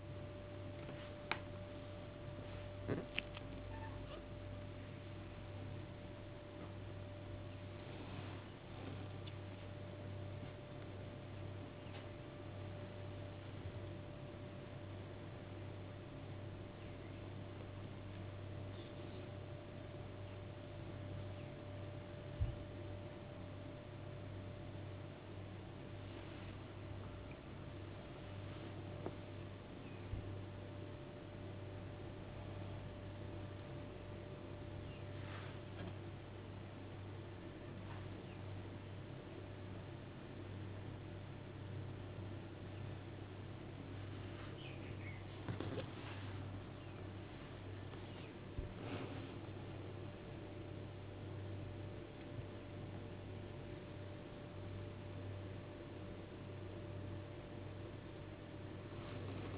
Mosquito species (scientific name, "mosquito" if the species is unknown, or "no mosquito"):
no mosquito